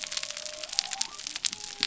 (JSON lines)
{"label": "biophony", "recorder": "SoundTrap 300"}